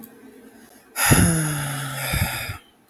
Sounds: Sigh